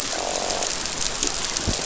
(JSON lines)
{"label": "biophony, croak", "recorder": "SoundTrap 500"}